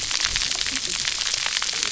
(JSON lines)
{"label": "biophony, cascading saw", "recorder": "SoundTrap 300"}